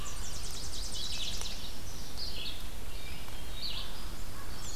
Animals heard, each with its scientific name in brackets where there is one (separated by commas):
Tennessee Warbler (Leiothlypis peregrina), Hermit Thrush (Catharus guttatus), Yellow-rumped Warbler (Setophaga coronata), Red-eyed Vireo (Vireo olivaceus)